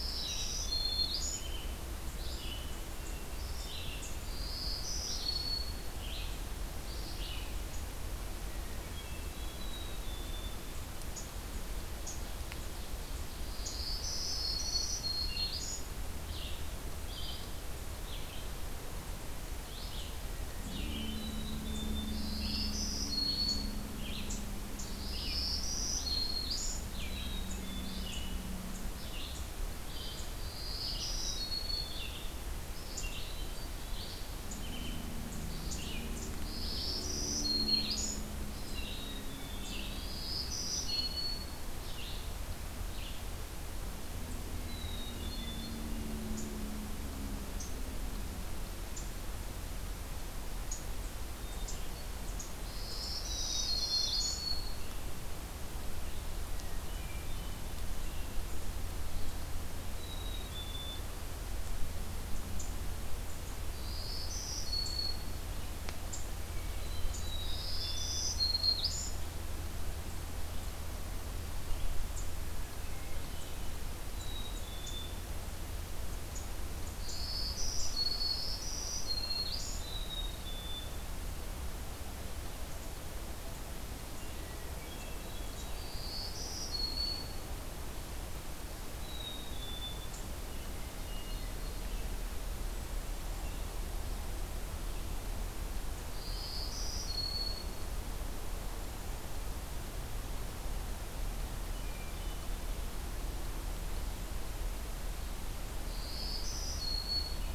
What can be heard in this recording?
Red-eyed Vireo, Black-throated Green Warbler, Black-capped Chickadee, Hermit Thrush